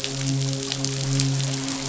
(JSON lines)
{"label": "biophony, midshipman", "recorder": "SoundTrap 500"}